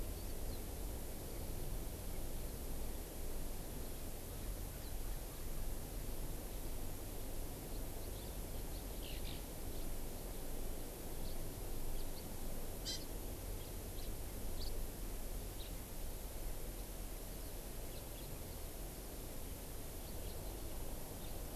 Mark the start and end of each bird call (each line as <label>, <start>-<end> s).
House Finch (Haemorhous mexicanus), 11.3-11.4 s
House Finch (Haemorhous mexicanus), 12.0-12.1 s
Hawaii Amakihi (Chlorodrepanis virens), 12.9-13.0 s
House Finch (Haemorhous mexicanus), 14.0-14.1 s
House Finch (Haemorhous mexicanus), 14.6-14.8 s
House Finch (Haemorhous mexicanus), 15.6-15.7 s